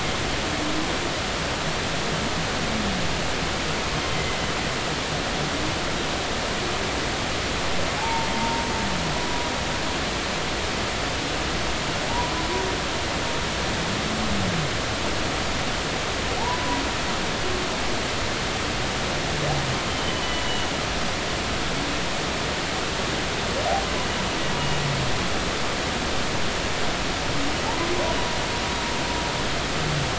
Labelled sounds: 4.1	4.4	humpback whale, 1.9 to 2.1 kHz
8.0	8.7	humpback whale, 0.80 to 0.96 kHz
9.2	9.5	humpback whale, 0.96 to 1.0 kHz
12.1	12.3	humpback whale, 0.83 to 1.1 kHz
16.4	16.8	humpback whale, 0.80 to 1.1 kHz
20.0	20.7	humpback whale, 2.8 to 3.1 kHz

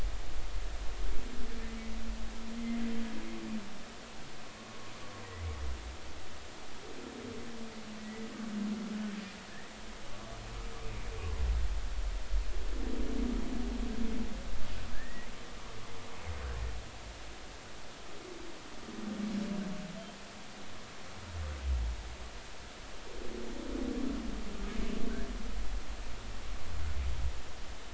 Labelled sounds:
4.5	4.8	humpback whale, 1.0 to 1.1 kHz
8.0	8.3	humpback whale, 1.9 to 2.0 kHz
14.9	15.3	humpback whale, 1.5 to 2.0 kHz

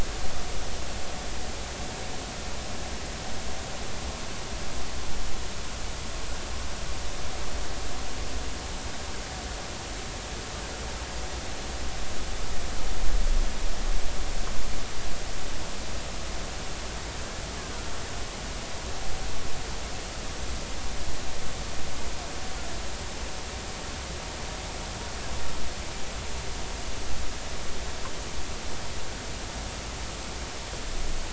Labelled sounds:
17.6	17.9	killer whale, Bigg's (transient), 1.3 to 1.7 kHz

